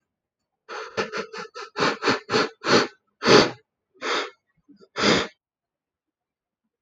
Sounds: Sniff